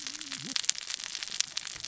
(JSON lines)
{"label": "biophony, cascading saw", "recorder": "SoundTrap 600 or HydroMoth"}